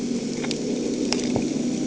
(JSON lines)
{"label": "anthrophony, boat engine", "recorder": "HydroMoth"}